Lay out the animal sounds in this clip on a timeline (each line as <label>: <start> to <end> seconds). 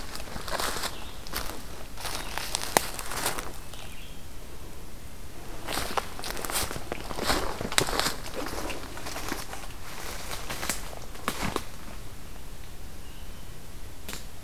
Red-eyed Vireo (Vireo olivaceus): 0.0 to 4.4 seconds